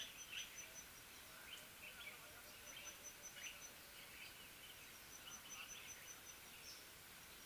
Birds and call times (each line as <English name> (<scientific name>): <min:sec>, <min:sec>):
Common Bulbul (Pycnonotus barbatus): 0:03.4